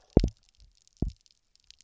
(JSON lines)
{"label": "biophony, double pulse", "recorder": "SoundTrap 300"}